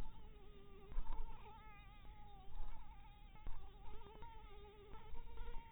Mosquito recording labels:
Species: Anopheles maculatus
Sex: female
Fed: blood-fed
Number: one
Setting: cup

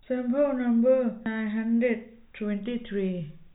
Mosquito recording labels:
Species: no mosquito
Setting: cup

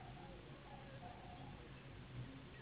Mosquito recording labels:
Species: Anopheles gambiae s.s.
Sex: female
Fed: unfed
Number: one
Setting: insect culture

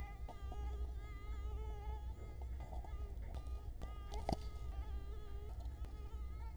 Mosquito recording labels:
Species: Culex quinquefasciatus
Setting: cup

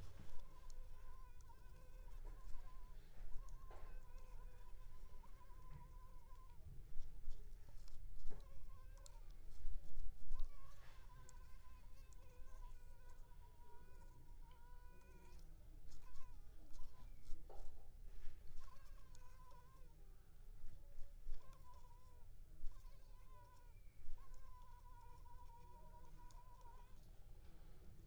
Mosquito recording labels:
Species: Culex pipiens complex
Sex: female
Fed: unfed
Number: one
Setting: cup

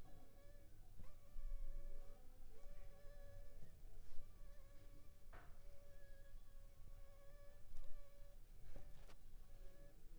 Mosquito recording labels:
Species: Anopheles funestus s.s.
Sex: female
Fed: unfed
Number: one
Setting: cup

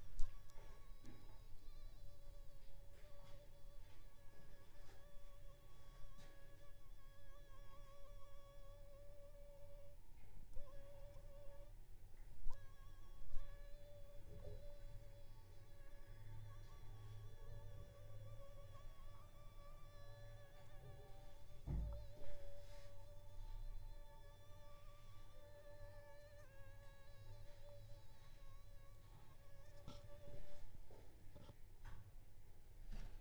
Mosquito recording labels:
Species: Anopheles funestus s.s.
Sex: female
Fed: unfed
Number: one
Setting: cup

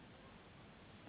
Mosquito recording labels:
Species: Anopheles gambiae s.s.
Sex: female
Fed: unfed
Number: one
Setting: insect culture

